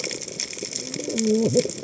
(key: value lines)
label: biophony, cascading saw
recorder: HydroMoth